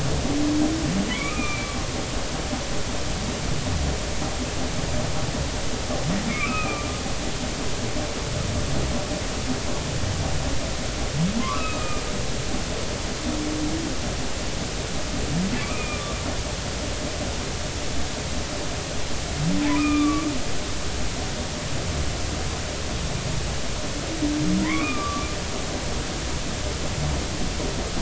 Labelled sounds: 1.1	1.8	humpback whale, 1.1 to 2.6 kHz
6.3	6.9	humpback whale, 1.1 to 2.7 kHz
11.4	12.0	humpback whale, 0.99 to 2.8 kHz
15.6	16.2	humpback whale, 1.1 to 2.6 kHz
19.7	20.3	humpback whale, 1.1 to 2.6 kHz
24.6	25.3	humpback whale, 0.90 to 2.6 kHz

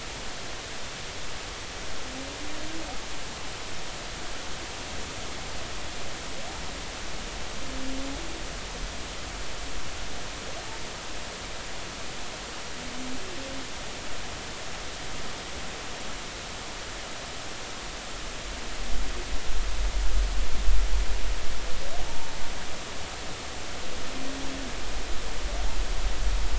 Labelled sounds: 22.1	22.4	humpback whale, 0.86 to 0.96 kHz

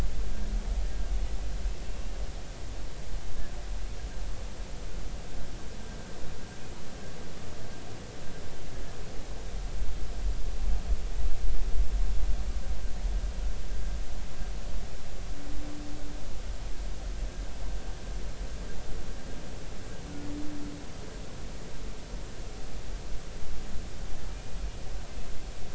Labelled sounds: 1.8	2.2	humpback whale, 2.7 to 2.8 kHz

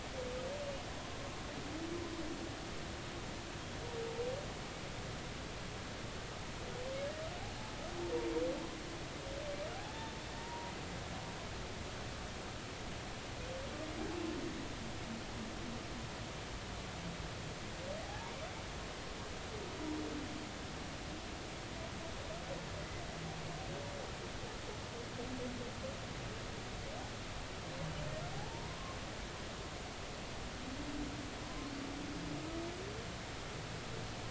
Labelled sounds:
9.7	10.7	humpback whale, 0.80 to 0.99 kHz
18.0	18.4	humpback whale, 0.80 to 1.1 kHz
28.5	29.0	humpback whale, 0.86 to 1.2 kHz

